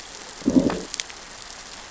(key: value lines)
label: biophony, growl
recorder: SoundTrap 600 or HydroMoth